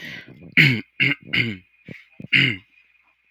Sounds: Throat clearing